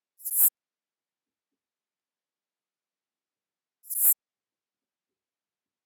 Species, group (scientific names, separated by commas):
Synephippius obvius, Orthoptera